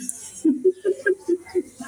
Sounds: Laughter